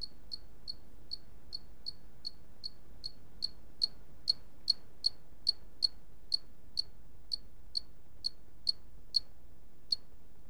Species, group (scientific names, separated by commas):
Loxoblemmus arietulus, Orthoptera